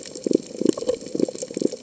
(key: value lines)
label: biophony
recorder: HydroMoth